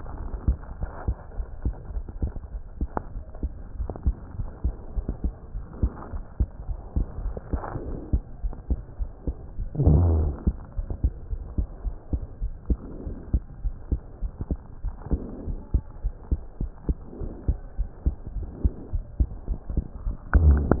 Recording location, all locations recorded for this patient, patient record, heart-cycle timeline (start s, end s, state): pulmonary valve (PV)
aortic valve (AV)+pulmonary valve (PV)+tricuspid valve (TV)+mitral valve (MV)
#Age: Child
#Sex: Female
#Height: 99.0 cm
#Weight: 12.7 kg
#Pregnancy status: False
#Murmur: Absent
#Murmur locations: nan
#Most audible location: nan
#Systolic murmur timing: nan
#Systolic murmur shape: nan
#Systolic murmur grading: nan
#Systolic murmur pitch: nan
#Systolic murmur quality: nan
#Diastolic murmur timing: nan
#Diastolic murmur shape: nan
#Diastolic murmur grading: nan
#Diastolic murmur pitch: nan
#Diastolic murmur quality: nan
#Outcome: Normal
#Campaign: 2015 screening campaign
0.00	5.36	unannotated
5.36	5.52	diastole
5.52	5.64	S1
5.64	5.79	systole
5.79	5.90	S2
5.90	6.12	diastole
6.12	6.24	S1
6.24	6.36	systole
6.36	6.48	S2
6.48	6.64	diastole
6.64	6.79	S1
6.79	6.93	systole
6.93	7.07	S2
7.07	7.24	diastole
7.24	7.37	S1
7.37	7.50	systole
7.50	7.62	S2
7.62	7.85	diastole
7.85	7.96	S1
7.96	8.10	systole
8.10	8.21	S2
8.21	8.41	diastole
8.41	8.56	S1
8.56	8.66	systole
8.66	8.80	S2
8.80	8.98	diastole
8.98	9.09	S1
9.09	9.24	systole
9.24	9.35	S2
9.35	9.56	diastole
9.56	9.68	S1
9.68	9.82	systole
9.82	9.98	S2
9.98	10.19	diastole
10.19	10.34	S1
10.34	10.42	systole
10.42	10.56	S2
10.56	10.74	diastole
10.74	10.86	S1
10.86	11.02	systole
11.02	11.18	S2
11.18	11.30	diastole
11.30	11.42	S1
11.42	11.56	systole
11.56	11.67	S2
11.67	11.81	diastole
11.81	11.94	S1
11.94	12.10	systole
12.10	12.22	S2
12.22	12.40	diastole
12.40	12.54	S1
12.54	12.66	systole
12.66	12.78	S2
12.78	13.04	diastole
13.04	13.16	S1
13.16	13.30	systole
13.30	13.42	S2
13.42	13.62	diastole
13.62	13.74	S1
13.74	13.86	systole
13.86	14.00	S2
14.00	14.19	diastole
14.19	14.32	S1
14.32	14.49	systole
14.49	14.58	S2
14.58	14.81	diastole
14.81	14.96	S1
14.96	15.10	systole
15.10	15.24	S2
15.24	15.45	diastole
15.45	15.59	S1
15.59	15.71	systole
15.71	15.83	S2
15.83	16.02	diastole
16.02	16.14	S1
16.14	16.26	systole
16.26	16.40	S2
16.40	16.58	diastole
16.58	16.70	S1
16.70	16.86	systole
16.86	16.96	S2
16.96	17.19	diastole
17.19	17.34	S1
17.34	17.44	systole
17.44	17.58	S2
17.58	17.75	diastole
17.75	17.86	S1
17.86	18.03	systole
18.03	18.16	S2
18.16	18.34	diastole
18.34	18.50	S1
18.50	18.60	systole
18.60	18.72	S2
18.72	18.90	diastole
18.90	19.04	S1
19.04	19.15	systole
19.15	19.29	S2
19.29	19.46	diastole
19.46	19.58	S1
19.58	19.69	systole
19.69	19.86	S2
19.86	20.00	diastole
20.00	20.80	unannotated